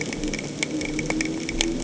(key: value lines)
label: anthrophony, boat engine
recorder: HydroMoth